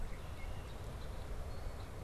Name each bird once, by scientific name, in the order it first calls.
Agelaius phoeniceus, Poecile atricapillus